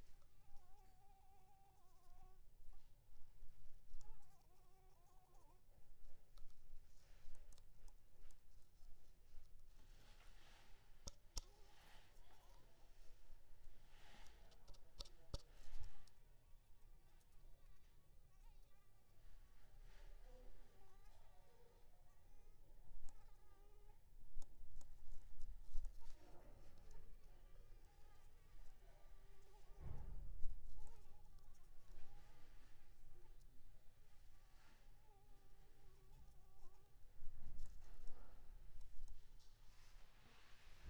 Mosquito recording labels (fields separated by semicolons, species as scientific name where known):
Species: Anopheles arabiensis; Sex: female; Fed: unfed; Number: one; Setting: cup